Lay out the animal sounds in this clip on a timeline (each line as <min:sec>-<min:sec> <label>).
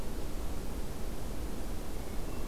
0:02.0-0:02.5 Hermit Thrush (Catharus guttatus)